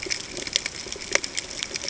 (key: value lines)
label: ambient
recorder: HydroMoth